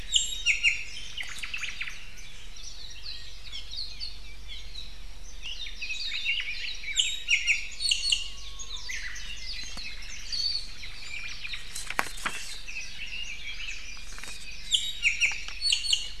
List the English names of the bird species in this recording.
Iiwi, Omao, Apapane, Hawaii Akepa, Japanese Bush Warbler, Red-billed Leiothrix